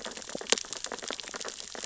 {"label": "biophony, sea urchins (Echinidae)", "recorder": "SoundTrap 600 or HydroMoth"}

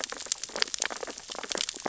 {"label": "biophony, sea urchins (Echinidae)", "recorder": "SoundTrap 600 or HydroMoth"}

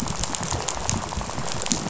{"label": "biophony, rattle", "recorder": "SoundTrap 500"}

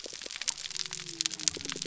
{"label": "biophony", "recorder": "SoundTrap 300"}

